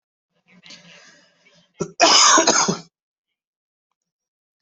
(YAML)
expert_labels:
- quality: ok
  cough_type: dry
  dyspnea: false
  wheezing: false
  stridor: false
  choking: false
  congestion: false
  nothing: false
  diagnosis: upper respiratory tract infection
  severity: mild
age: 39
gender: male
respiratory_condition: false
fever_muscle_pain: false
status: symptomatic